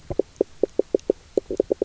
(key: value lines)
label: biophony, knock
recorder: SoundTrap 300